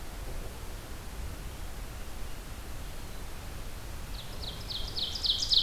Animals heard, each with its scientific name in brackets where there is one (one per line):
Ovenbird (Seiurus aurocapilla)